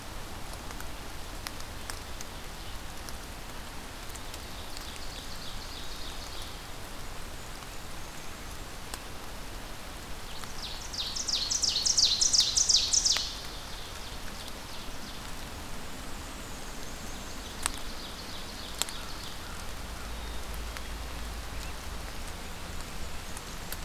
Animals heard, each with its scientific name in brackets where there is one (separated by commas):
American Crow (Corvus brachyrhynchos), Black-capped Chickadee (Poecile atricapillus), Black-and-white Warbler (Mniotilta varia), Ovenbird (Seiurus aurocapilla)